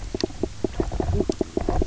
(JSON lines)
{"label": "biophony, knock croak", "recorder": "SoundTrap 300"}